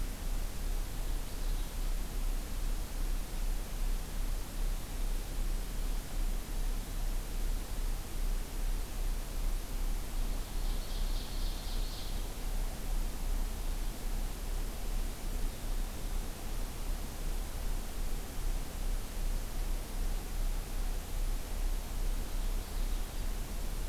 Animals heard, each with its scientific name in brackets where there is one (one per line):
Ovenbird (Seiurus aurocapilla)